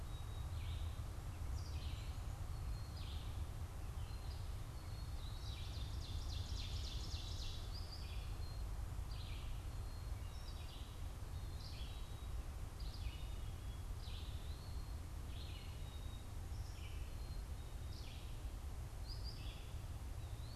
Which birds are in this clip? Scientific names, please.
Poecile atricapillus, Vireo olivaceus, Seiurus aurocapilla